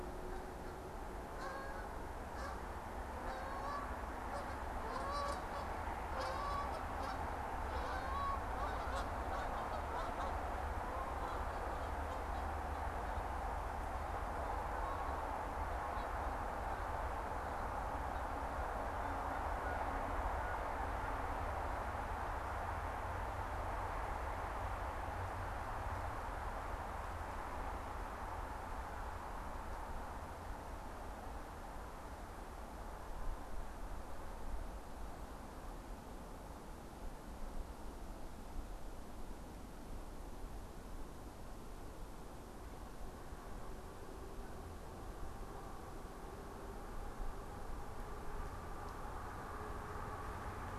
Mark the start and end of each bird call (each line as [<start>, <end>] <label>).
[0.00, 16.87] Canada Goose (Branta canadensis)